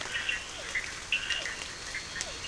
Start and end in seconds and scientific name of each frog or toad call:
0.0	2.4	Boana bischoffi
0.0	2.4	Physalaemus cuvieri
0.0	2.4	Scinax perereca
0.0	2.4	Sphaenorhynchus surdus
1.5	2.4	Elachistocleis bicolor